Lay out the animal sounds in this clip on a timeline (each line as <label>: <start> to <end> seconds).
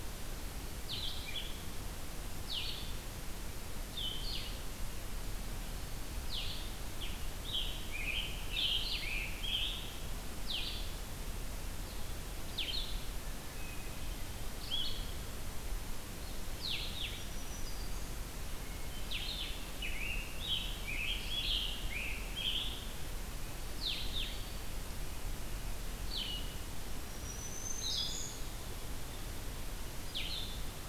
Blue-headed Vireo (Vireo solitarius): 0.7 to 30.9 seconds
Scarlet Tanager (Piranga olivacea): 6.9 to 10.1 seconds
Black-throated Green Warbler (Setophaga virens): 17.1 to 18.2 seconds
Scarlet Tanager (Piranga olivacea): 19.2 to 23.5 seconds
Eastern Wood-Pewee (Contopus virens): 23.7 to 24.9 seconds
Black-throated Green Warbler (Setophaga virens): 26.8 to 28.5 seconds